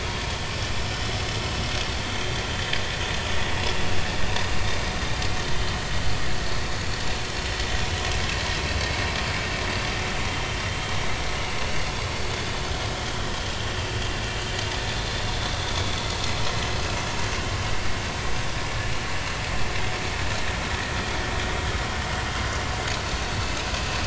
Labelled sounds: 7.3	7.6	vessel noise, 5.2 to 5.4 kHz
13.1	13.4	vessel noise, 3.0 to 3.4 kHz

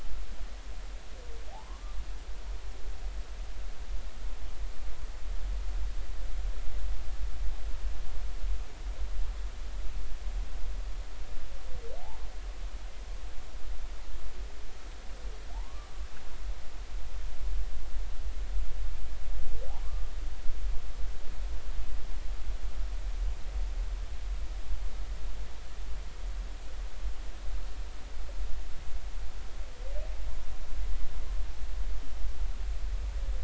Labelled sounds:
1.5	2.0	humpback whale, 0.80 to 1.2 kHz
12.0	12.3	humpback whale, 0.80 to 1.1 kHz
15.5	15.9	humpback whale, 0.80 to 1.2 kHz
19.8	20.1	humpback whale, 1.0 to 1.2 kHz

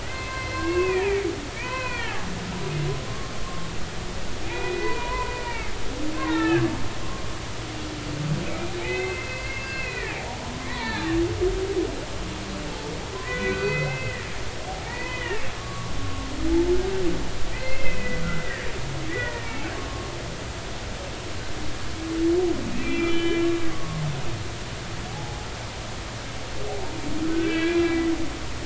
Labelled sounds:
0.0	2.3	humpback whale, 0.80 to 4.3 kHz
4.5	5.8	humpback whale, 0.83 to 2.9 kHz
6.2	6.7	humpback whale, 0.83 to 2.8 kHz
8.8	11.1	humpback whale, 0.80 to 4.3 kHz
13.2	14.3	humpback whale, 1.4 to 4.6 kHz
14.7	16.3	humpback whale, 0.80 to 3.1 kHz
17.5	18.7	humpback whale, 1.6 to 2.7 kHz
19.1	19.7	humpback whale, 1.8 to 2.8 kHz
22.8	24.0	humpback whale, 1.1 to 3.4 kHz
25.1	25.5	humpback whale, 0.80 to 0.90 kHz
27.3	28.1	humpback whale, 1.4 to 3.5 kHz

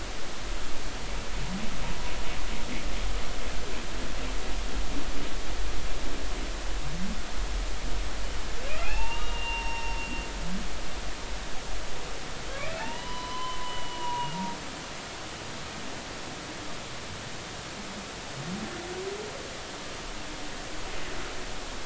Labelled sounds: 8.8	10.0	humpback whale, 0.80 to 5.6 kHz
12.7	14.3	humpback whale, 0.83 to 3.1 kHz

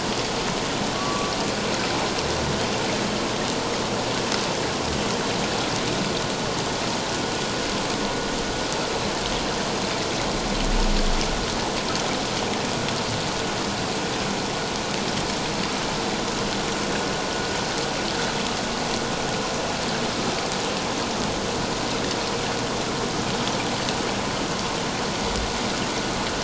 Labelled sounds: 0.9	1.3	humpback whale, 1.0 to 1.2 kHz

